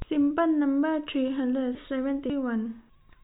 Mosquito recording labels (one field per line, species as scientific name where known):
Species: no mosquito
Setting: cup